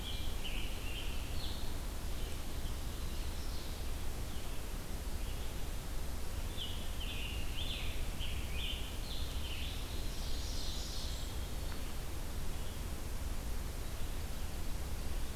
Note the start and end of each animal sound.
0.0s-1.8s: Scarlet Tanager (Piranga olivacea)
0.0s-12.9s: Red-eyed Vireo (Vireo olivaceus)
2.4s-4.1s: Ovenbird (Seiurus aurocapilla)
6.5s-10.1s: Scarlet Tanager (Piranga olivacea)
9.6s-11.4s: Ovenbird (Seiurus aurocapilla)
9.8s-11.4s: Blackburnian Warbler (Setophaga fusca)

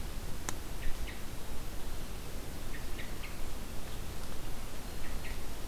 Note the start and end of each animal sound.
0.7s-1.2s: Hermit Thrush (Catharus guttatus)
2.6s-3.4s: Hermit Thrush (Catharus guttatus)
4.9s-5.5s: Hermit Thrush (Catharus guttatus)

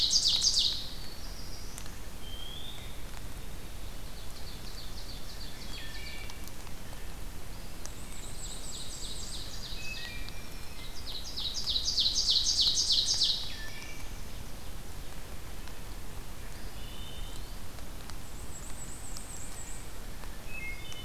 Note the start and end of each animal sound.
0.0s-0.9s: Ovenbird (Seiurus aurocapilla)
0.4s-1.9s: Black-throated Blue Warbler (Setophaga caerulescens)
1.8s-3.0s: Wood Thrush (Hylocichla mustelina)
3.8s-6.2s: Ovenbird (Seiurus aurocapilla)
5.5s-6.3s: Wood Thrush (Hylocichla mustelina)
7.4s-8.7s: Eastern Wood-Pewee (Contopus virens)
7.6s-9.6s: Black-and-white Warbler (Mniotilta varia)
8.1s-10.3s: Ovenbird (Seiurus aurocapilla)
9.5s-10.9s: Wood Thrush (Hylocichla mustelina)
10.6s-13.5s: Ovenbird (Seiurus aurocapilla)
13.0s-14.1s: Black-throated Blue Warbler (Setophaga caerulescens)
13.3s-14.2s: Wood Thrush (Hylocichla mustelina)
16.4s-17.6s: Wood Thrush (Hylocichla mustelina)
16.4s-17.7s: Eastern Wood-Pewee (Contopus virens)
18.0s-20.0s: Black-and-white Warbler (Mniotilta varia)
20.3s-21.0s: Wood Thrush (Hylocichla mustelina)

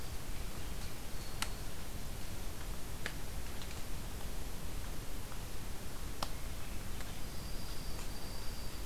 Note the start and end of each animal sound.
0.2s-1.1s: Swainson's Thrush (Catharus ustulatus)
0.9s-1.8s: Black-throated Green Warbler (Setophaga virens)
6.0s-7.2s: Swainson's Thrush (Catharus ustulatus)
7.2s-8.9s: Dark-eyed Junco (Junco hyemalis)

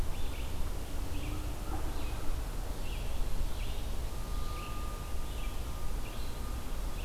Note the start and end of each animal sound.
0.0s-7.0s: Red-eyed Vireo (Vireo olivaceus)

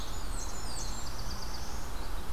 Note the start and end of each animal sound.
0.0s-1.1s: Blackburnian Warbler (Setophaga fusca)
0.0s-2.0s: Black-throated Blue Warbler (Setophaga caerulescens)
0.0s-2.3s: Red-eyed Vireo (Vireo olivaceus)

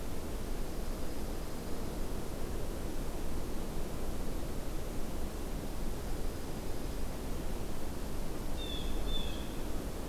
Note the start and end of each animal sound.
0.4s-2.2s: Dark-eyed Junco (Junco hyemalis)
5.9s-7.2s: Dark-eyed Junco (Junco hyemalis)
8.5s-9.6s: Blue Jay (Cyanocitta cristata)

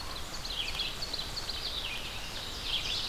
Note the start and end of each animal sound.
0.0s-1.9s: Ovenbird (Seiurus aurocapilla)
0.0s-3.1s: Red-eyed Vireo (Vireo olivaceus)
2.2s-3.1s: Ovenbird (Seiurus aurocapilla)

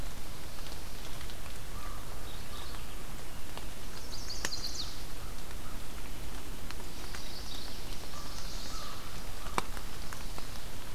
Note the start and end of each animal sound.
1.2s-3.1s: American Crow (Corvus brachyrhynchos)
2.0s-3.0s: Mourning Warbler (Geothlypis philadelphia)
3.7s-5.2s: Chestnut-sided Warbler (Setophaga pensylvanica)
6.7s-7.8s: Mourning Warbler (Geothlypis philadelphia)
7.5s-9.1s: Chestnut-sided Warbler (Setophaga pensylvanica)
8.0s-9.8s: American Crow (Corvus brachyrhynchos)

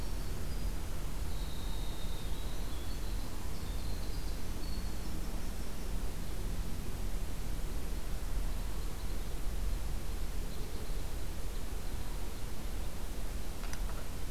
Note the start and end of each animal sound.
0.0s-6.2s: Winter Wren (Troglodytes hiemalis)
7.4s-13.0s: Red Crossbill (Loxia curvirostra)

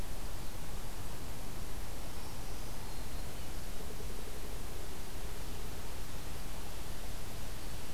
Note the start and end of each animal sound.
1.9s-3.5s: Black-throated Green Warbler (Setophaga virens)
3.7s-5.9s: Pileated Woodpecker (Dryocopus pileatus)

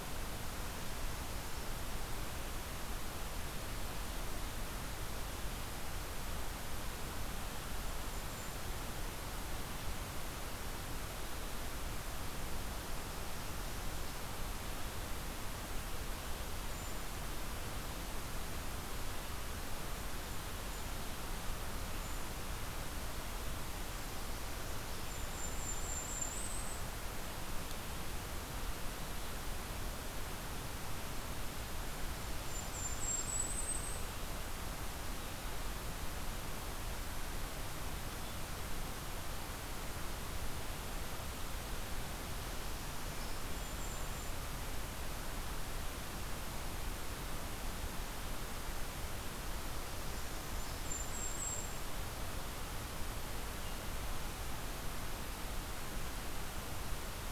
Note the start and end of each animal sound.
7.7s-8.9s: Golden-crowned Kinglet (Regulus satrapa)
16.6s-17.1s: Golden-crowned Kinglet (Regulus satrapa)
19.7s-21.0s: Golden-crowned Kinglet (Regulus satrapa)
21.9s-22.3s: Golden-crowned Kinglet (Regulus satrapa)
25.0s-26.9s: Golden-crowned Kinglet (Regulus satrapa)
32.1s-34.1s: Golden-crowned Kinglet (Regulus satrapa)
42.5s-43.4s: Northern Parula (Setophaga americana)
43.4s-44.4s: Golden-crowned Kinglet (Regulus satrapa)
49.9s-50.8s: Northern Parula (Setophaga americana)
50.0s-51.8s: Golden-crowned Kinglet (Regulus satrapa)

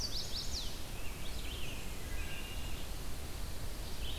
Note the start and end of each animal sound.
0.0s-0.9s: Chestnut-sided Warbler (Setophaga pensylvanica)
0.0s-4.2s: Red-eyed Vireo (Vireo olivaceus)
0.8s-2.6s: American Robin (Turdus migratorius)
1.9s-3.1s: Wood Thrush (Hylocichla mustelina)

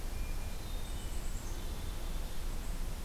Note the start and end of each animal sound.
0.0s-1.2s: Hermit Thrush (Catharus guttatus)
0.7s-2.6s: Black-capped Chickadee (Poecile atricapillus)

